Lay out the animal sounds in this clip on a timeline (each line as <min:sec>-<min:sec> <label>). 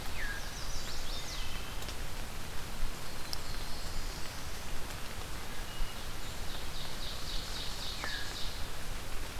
0:00.0-0:00.4 Veery (Catharus fuscescens)
0:00.0-0:01.7 Chestnut-sided Warbler (Setophaga pensylvanica)
0:01.0-0:01.8 Wood Thrush (Hylocichla mustelina)
0:02.9-0:04.7 Black-throated Blue Warbler (Setophaga caerulescens)
0:03.2-0:04.6 Blackburnian Warbler (Setophaga fusca)
0:05.3-0:06.0 Wood Thrush (Hylocichla mustelina)
0:06.0-0:08.9 Ovenbird (Seiurus aurocapilla)
0:07.8-0:08.4 Veery (Catharus fuscescens)